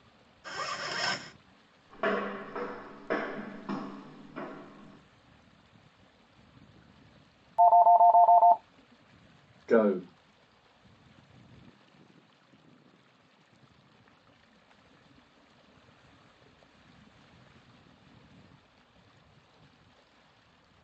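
First, the sound of a zipper is audible. Then someone walks. After that, you can hear a telephone. Finally, a voice says "Go."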